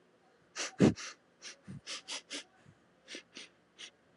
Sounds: Sniff